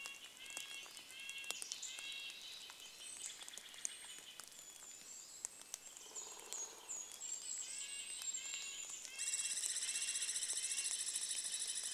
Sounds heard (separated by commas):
Pine Siskin call, Golden-crowned Kinglet song, Steller's Jay call, rain, Douglas squirrel rattle, woodpecker drumming, Red-breasted Nuthatch song